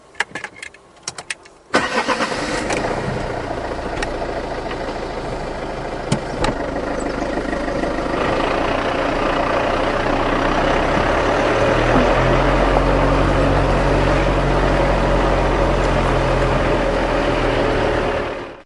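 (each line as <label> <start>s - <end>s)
Keys clicking as they are inserted into a car ignition. 0.0s - 1.6s
A car starter motor is running. 1.7s - 2.3s
A diesel car idling. 2.4s - 6.7s
A car shifting into gear. 6.1s - 6.6s
A diesel car drives away. 8.2s - 18.7s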